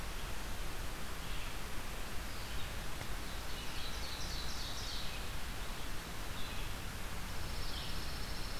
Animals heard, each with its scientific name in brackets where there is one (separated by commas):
Pine Warbler (Setophaga pinus), Ovenbird (Seiurus aurocapilla), Red-eyed Vireo (Vireo olivaceus)